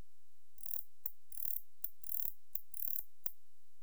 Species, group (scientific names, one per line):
Barbitistes ocskayi
Orthoptera